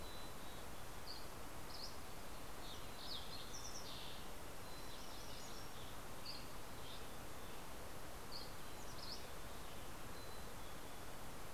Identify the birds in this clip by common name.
Mountain Chickadee, Dusky Flycatcher, Fox Sparrow, MacGillivray's Warbler